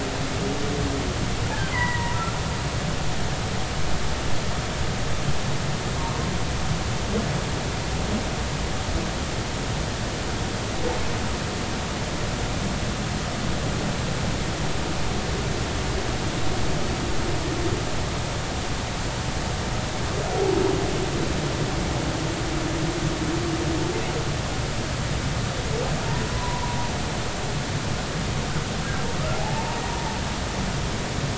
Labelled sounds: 1.7	2.2	humpback whale, 0.90 to 2.1 kHz
26.3	26.8	humpback whale, 0.93 to 1.1 kHz
29.4	29.8	humpback whale, 0.80 to 0.99 kHz

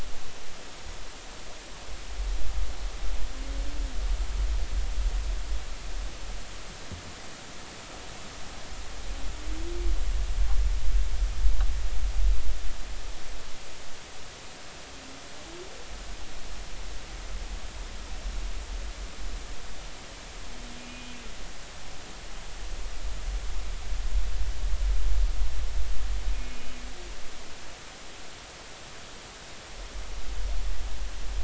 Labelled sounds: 20.8	21.2	humpback whale, 2.4 to 3.0 kHz
26.3	26.7	humpback whale, 2.4 to 2.5 kHz

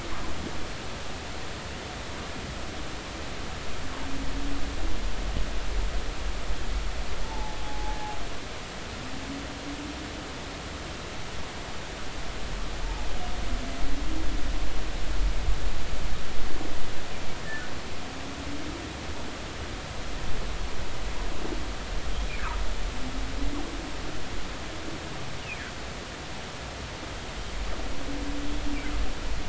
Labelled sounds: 7.2	8.0	humpback whale, 0.80 to 0.93 kHz

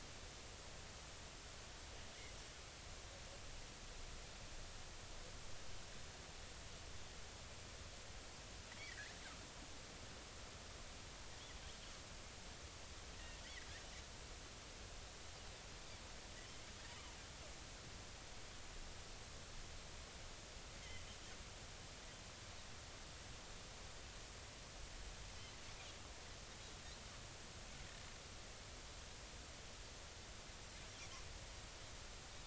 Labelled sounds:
8.9	9.1	Pacific white-sided dolphin, 1.5 to 2.1 kHz
13.2	13.4	Pacific white-sided dolphin, 1.8 to 2.0 kHz

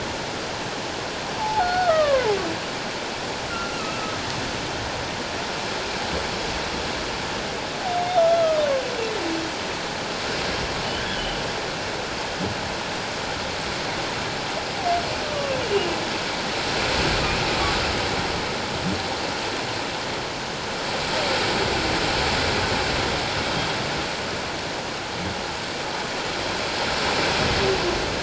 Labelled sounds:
1.4	2.4	humpback whale, 0.78 to 4.5 kHz
3.5	4.2	humpback whale, 1.1 to 1.5 kHz
8.3	8.6	humpback whale, 1.2 to 1.4 kHz
11.0	11.3	humpback whale, 1.4 to 1.8 kHz
15.2	15.5	humpback whale, 1.1 to 1.3 kHz

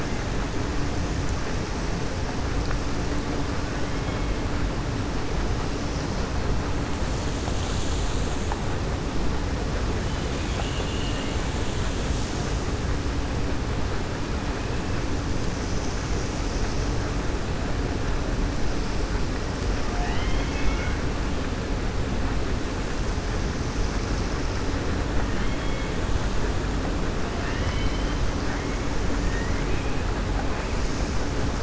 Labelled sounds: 10.6	11.4	killer whale, 1.8 to 4.4 kHz
19.9	21.0	killer whale, 0.72 to 3.8 kHz
25.2	25.9	killer whale, 0.97 to 3.9 kHz
27.3	28.2	killer whale, 1.7 to 4.1 kHz
29.2	29.9	killer whale, 1.6 to 3.3 kHz

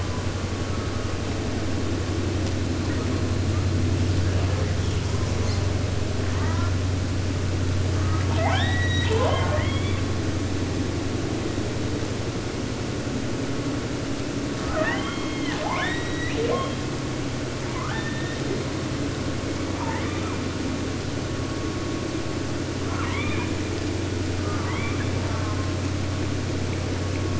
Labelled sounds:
2.7	3.8	killer whale, 0.82 to 4.9 kHz
4.2	5.7	killer whale, 0.72 to 8.0 kHz
6.1	6.8	killer whale, southern resident, 0.55 to 6.0 kHz
7.9	10.1	killer whale, southern resident, 0.44 to 8.0 kHz
14.5	16.9	killer whale, southern resident, J pod, call S44 and call S02i, 0.50 to 8.0 kHz
17.6	18.9	killer whale, southern resident, J pod, call S02i, 0.50 to 4.4 kHz
19.7	20.6	killer whale, southern resident, J pod, call S44, 0.50 to 4.0 kHz
22.8	23.7	killer whale, 0.50 to 4.0 kHz
24.3	25.9	killer whale, southern resident, J pod, call S04 and call S44, 0.50 to 3.9 kHz

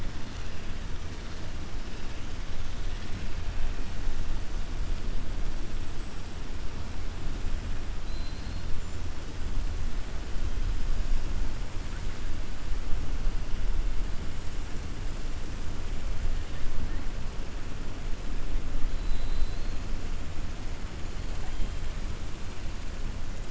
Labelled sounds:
8.0	8.7	killer whale, 3.6 to 4.7 kHz
18.9	19.8	killer whale, 3.1 to 4.3 kHz

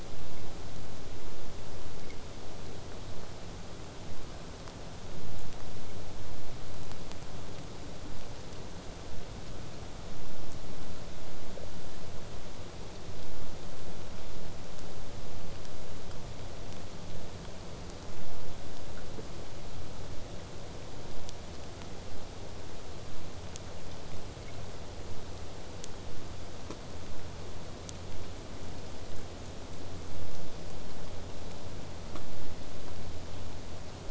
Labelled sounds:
20.1	25.1	vessel noise, 0 to 8.0 kHz

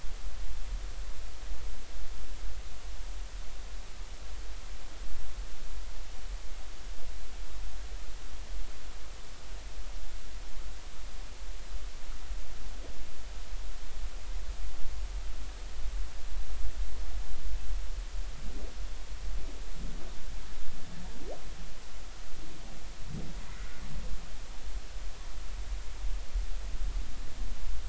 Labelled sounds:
23.5	23.8	humpback whale, 1.4 to 1.5 kHz

